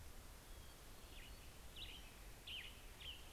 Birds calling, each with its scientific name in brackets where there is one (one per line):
Western Tanager (Piranga ludoviciana)